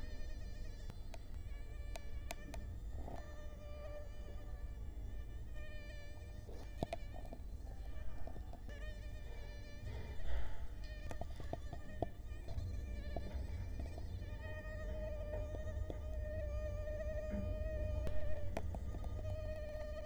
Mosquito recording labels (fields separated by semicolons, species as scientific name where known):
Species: Culex quinquefasciatus; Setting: cup